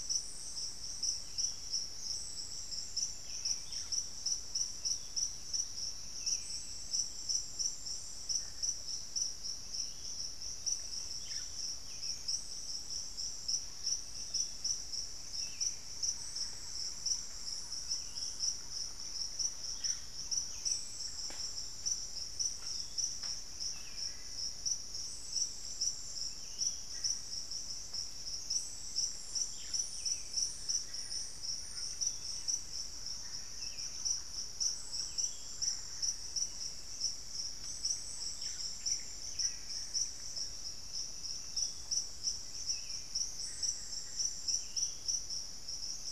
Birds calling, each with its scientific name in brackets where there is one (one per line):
Buff-throated Saltator (Saltator maximus)
Thrush-like Wren (Campylorhynchus turdinus)
Yellow-rumped Cacique (Cacicus cela)
Cinnamon-throated Woodcreeper (Dendrexetastes rufigula)